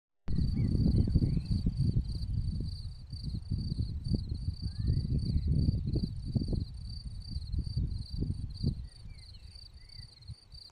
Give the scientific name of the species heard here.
Gryllus campestris